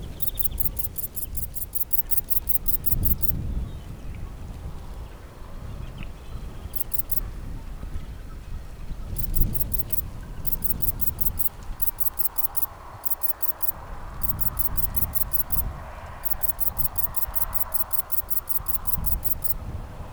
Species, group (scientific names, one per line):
Sepiana sepium
Orthoptera